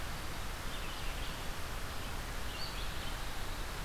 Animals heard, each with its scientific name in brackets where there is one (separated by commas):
Red-eyed Vireo (Vireo olivaceus)